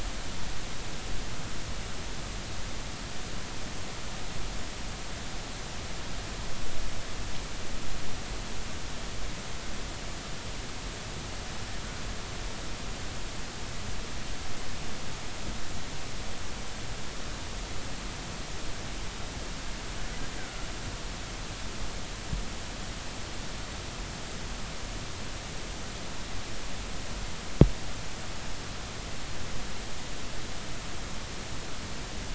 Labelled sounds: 20.4	20.7	killer whale, northern resident, R clan, call N33, 1.3 to 1.6 kHz

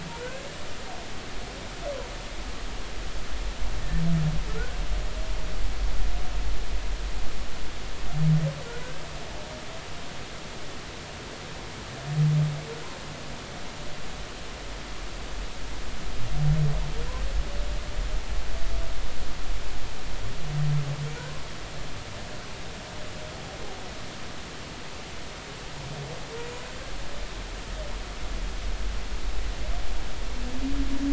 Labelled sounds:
0.1	0.5	humpback whale, 1.4 to 1.7 kHz
4.5	4.8	humpback whale, 1.3 to 1.6 kHz

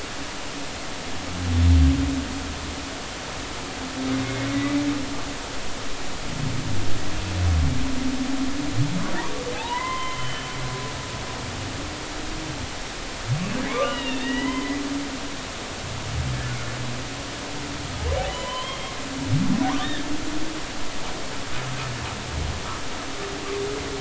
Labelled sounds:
9.7	11.3	humpback whale, 0.80 to 3.2 kHz
13.7	14.8	humpback whale, 0.90 to 4.0 kHz
18.2	18.9	humpback whale, 0.93 to 3.3 kHz
19.8	20.0	humpback whale, 3.2 to 3.8 kHz

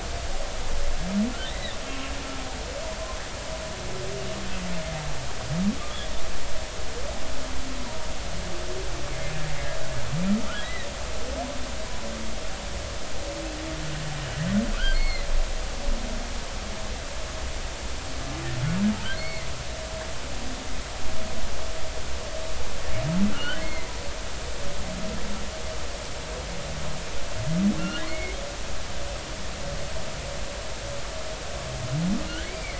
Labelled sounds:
1.5	1.8	humpback whale, 1.7 to 2.1 kHz
10.6	10.9	humpback whale, 1.8 to 2.1 kHz
14.7	15.3	humpback whale, 1.1 to 4.4 kHz
19.1	19.5	humpback whale, 2.0 to 4.5 kHz
23.3	23.9	humpback whale, 1.9 to 4.4 kHz
28.0	28.4	humpback whale, 1.8 to 2.3 kHz
32.3	32.7	humpback whale, 1.3 to 2.4 kHz

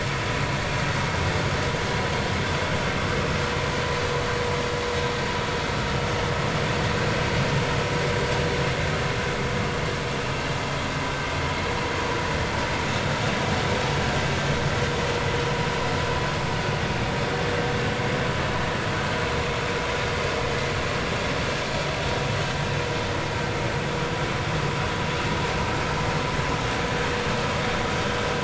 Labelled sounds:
12.9	13.2	vessel noise, 3.6 to 3.8 kHz

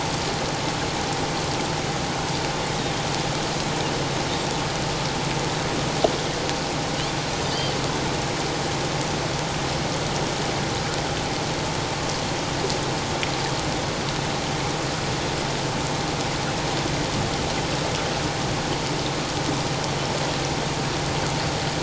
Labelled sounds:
7.4	7.7	Pacific white-sided dolphin, 4.6 to 5.0 kHz

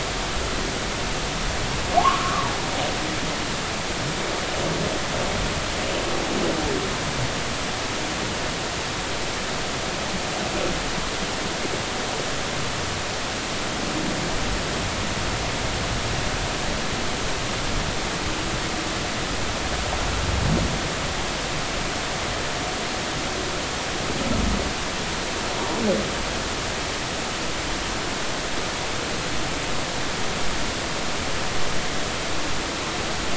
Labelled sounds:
2.0	2.6	humpback whale, 0.80 to 1.2 kHz

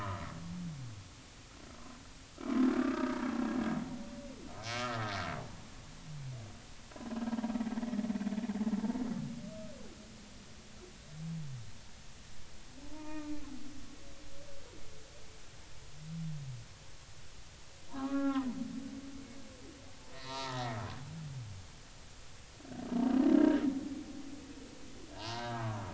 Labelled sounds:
2.8	3.2	humpback whale, 1.1 to 1.3 kHz
4.6	5.1	humpback whale, 1.2 to 5.4 kHz
12.9	13.3	humpback whale, 0.86 to 2.5 kHz
17.9	18.5	humpback whale, 0.80 to 2.0 kHz
20.1	20.8	humpback whale, 0.80 to 4.7 kHz
23.3	23.6	humpback whale, 1.5 to 1.7 kHz
25.2	25.7	humpback whale, 0.83 to 1.7 kHz

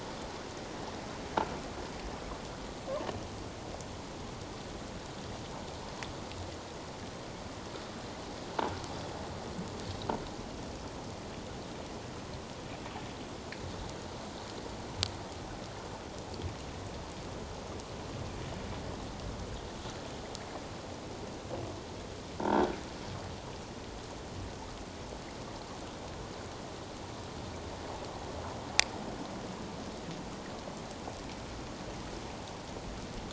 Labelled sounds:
22.4	22.7	croaking sound likely from a nearby submerged object, 1.3 to 1.7 kHz

